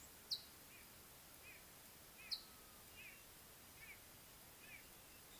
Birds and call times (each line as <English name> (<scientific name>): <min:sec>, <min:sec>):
White-bellied Go-away-bird (Corythaixoides leucogaster): 0:03.1